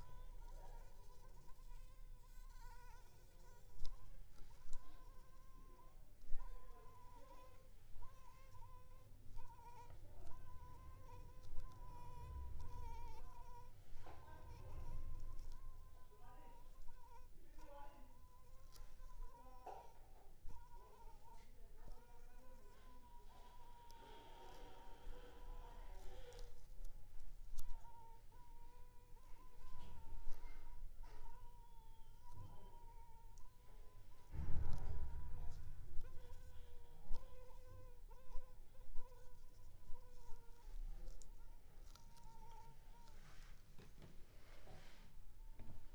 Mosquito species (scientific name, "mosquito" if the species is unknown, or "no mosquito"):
Anopheles funestus s.s.